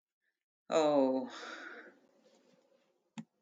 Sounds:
Sigh